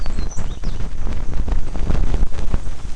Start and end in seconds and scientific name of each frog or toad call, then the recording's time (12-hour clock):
none
6:15pm